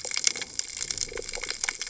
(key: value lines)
label: biophony
recorder: HydroMoth